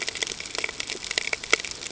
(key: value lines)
label: ambient
recorder: HydroMoth